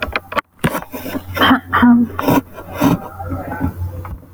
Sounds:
Throat clearing